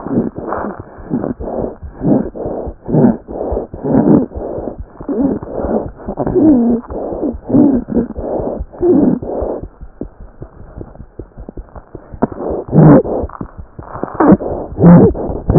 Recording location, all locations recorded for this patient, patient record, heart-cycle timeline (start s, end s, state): aortic valve (AV)
aortic valve (AV)
#Age: Infant
#Sex: Male
#Height: 66.0 cm
#Weight: 6.805 kg
#Pregnancy status: False
#Murmur: Unknown
#Murmur locations: nan
#Most audible location: nan
#Systolic murmur timing: nan
#Systolic murmur shape: nan
#Systolic murmur grading: nan
#Systolic murmur pitch: nan
#Systolic murmur quality: nan
#Diastolic murmur timing: nan
#Diastolic murmur shape: nan
#Diastolic murmur grading: nan
#Diastolic murmur pitch: nan
#Diastolic murmur quality: nan
#Outcome: Abnormal
#Campaign: 2015 screening campaign
0.00	9.79	unannotated
9.79	9.91	S1
9.91	9.99	systole
9.99	10.09	S2
10.09	10.17	diastole
10.17	10.27	S1
10.27	10.39	systole
10.39	10.48	S2
10.48	10.58	diastole
10.58	10.66	S1
10.66	10.76	systole
10.76	10.86	S2
10.86	10.99	diastole
10.99	11.06	S1
11.06	11.16	systole
11.16	11.25	S2
11.25	11.35	diastole
11.35	11.47	S1
11.47	11.56	systole
11.56	11.64	S2
11.64	11.74	diastole
11.74	11.83	S1
11.83	11.93	systole
11.93	12.00	S2
12.00	12.11	diastole
12.11	12.18	S1
12.18	15.58	unannotated